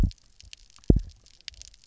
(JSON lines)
{"label": "biophony, double pulse", "recorder": "SoundTrap 300"}